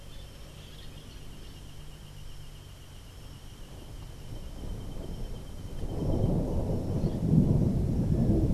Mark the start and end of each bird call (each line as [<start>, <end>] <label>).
[0.01, 1.61] Orange-fronted Parakeet (Eupsittula canicularis)